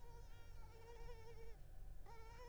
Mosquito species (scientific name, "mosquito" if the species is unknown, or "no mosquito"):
Culex pipiens complex